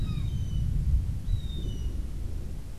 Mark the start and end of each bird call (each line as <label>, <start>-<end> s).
Gray Hawk (Buteo plagiatus), 0.0-1.9 s